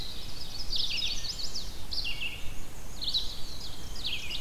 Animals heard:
Ovenbird (Seiurus aurocapilla), Chestnut-sided Warbler (Setophaga pensylvanica), Black-and-white Warbler (Mniotilta varia), Red-eyed Vireo (Vireo olivaceus)

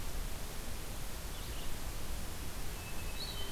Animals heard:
Red-eyed Vireo (Vireo olivaceus), Hermit Thrush (Catharus guttatus)

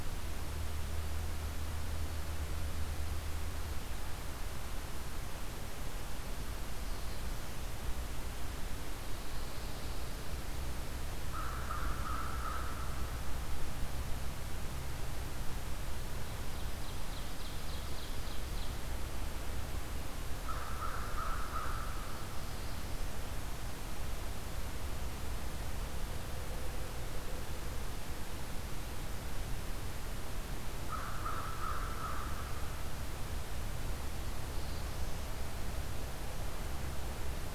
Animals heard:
Ovenbird (Seiurus aurocapilla), Black-throated Blue Warbler (Setophaga caerulescens), Pine Warbler (Setophaga pinus), American Crow (Corvus brachyrhynchos)

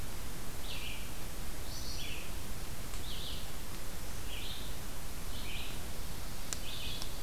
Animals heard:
Ovenbird (Seiurus aurocapilla), Red-eyed Vireo (Vireo olivaceus)

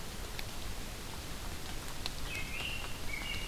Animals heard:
American Robin (Turdus migratorius)

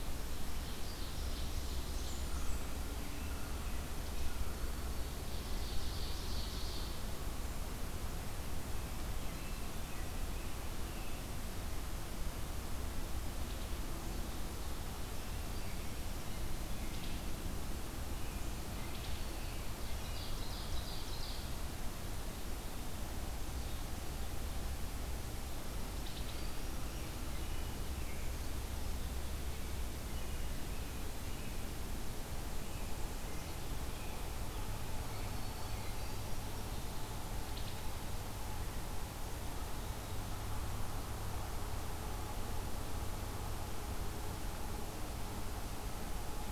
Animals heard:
Ovenbird (Seiurus aurocapilla), Wood Thrush (Hylocichla mustelina), American Robin (Turdus migratorius), American Crow (Corvus brachyrhynchos), Black-throated Green Warbler (Setophaga virens), Blackburnian Warbler (Setophaga fusca)

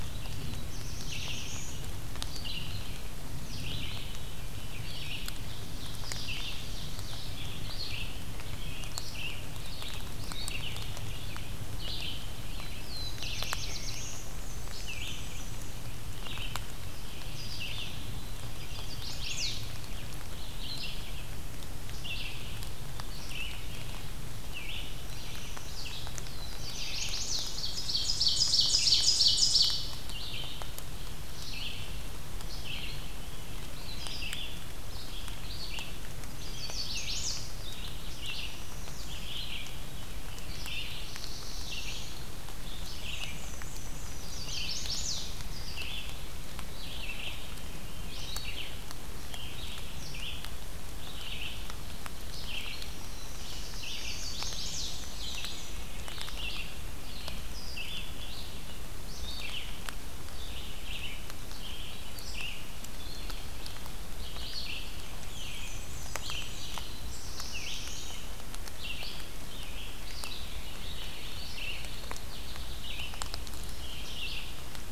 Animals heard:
Chestnut-sided Warbler (Setophaga pensylvanica), Veery (Catharus fuscescens), Pine Warbler (Setophaga pinus), Red-eyed Vireo (Vireo olivaceus), Black-throated Blue Warbler (Setophaga caerulescens), Ovenbird (Seiurus aurocapilla), Black-and-white Warbler (Mniotilta varia)

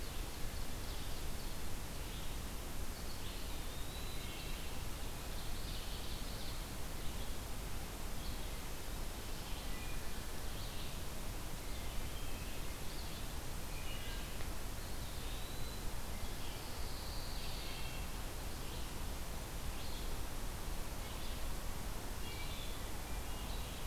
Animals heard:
Pine Warbler (Setophaga pinus), Eastern Wood-Pewee (Contopus virens), Ovenbird (Seiurus aurocapilla), Red-eyed Vireo (Vireo olivaceus), Wood Thrush (Hylocichla mustelina)

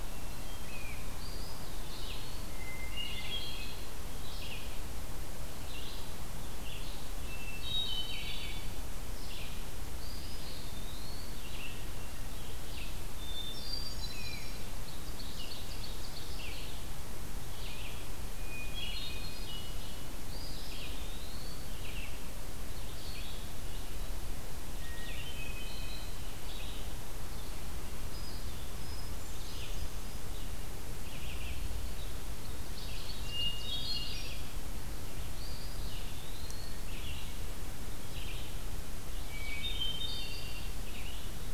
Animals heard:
Eastern Wood-Pewee (Contopus virens), Hermit Thrush (Catharus guttatus), Red-eyed Vireo (Vireo olivaceus), Ovenbird (Seiurus aurocapilla)

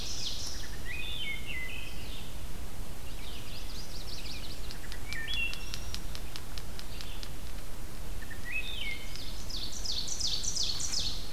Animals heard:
unidentified call, Ovenbird (Seiurus aurocapilla), Wood Thrush (Hylocichla mustelina), Red-eyed Vireo (Vireo olivaceus), Chestnut-sided Warbler (Setophaga pensylvanica)

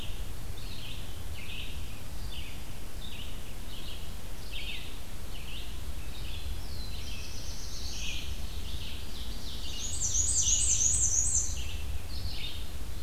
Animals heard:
Black-and-white Warbler (Mniotilta varia), Ovenbird (Seiurus aurocapilla), Red-eyed Vireo (Vireo olivaceus), Black-throated Blue Warbler (Setophaga caerulescens)

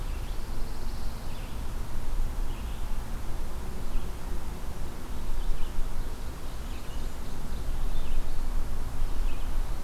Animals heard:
Blackburnian Warbler (Setophaga fusca), Pine Warbler (Setophaga pinus), Red-eyed Vireo (Vireo olivaceus)

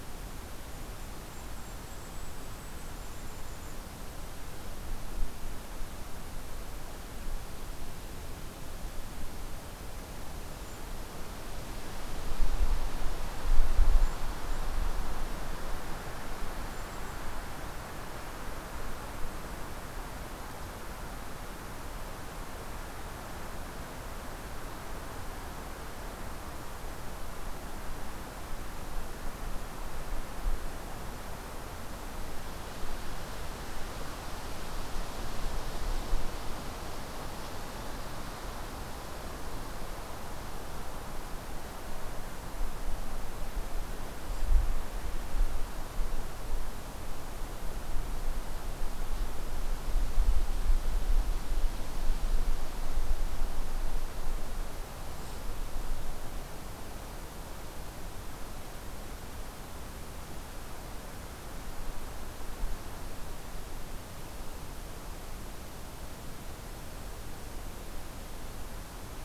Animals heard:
Golden-crowned Kinglet (Regulus satrapa)

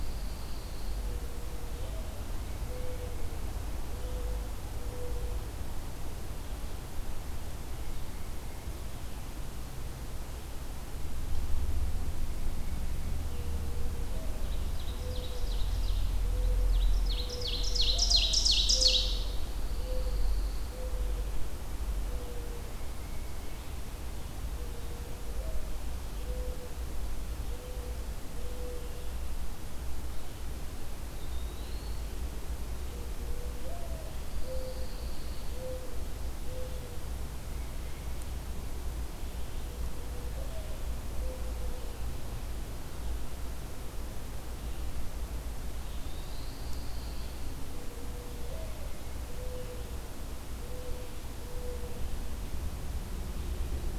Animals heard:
Eastern Wood-Pewee (Contopus virens), Pine Warbler (Setophaga pinus), Ovenbird (Seiurus aurocapilla), Mourning Dove (Zenaida macroura), Tufted Titmouse (Baeolophus bicolor)

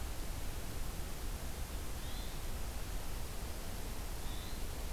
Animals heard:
Hermit Thrush (Catharus guttatus)

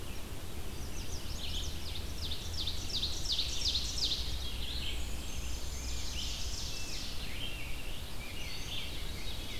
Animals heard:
Chestnut-sided Warbler (Setophaga pensylvanica), Black-and-white Warbler (Mniotilta varia), Ovenbird (Seiurus aurocapilla), Rose-breasted Grosbeak (Pheucticus ludovicianus), Red-eyed Vireo (Vireo olivaceus), Veery (Catharus fuscescens)

